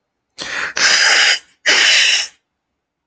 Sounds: Sneeze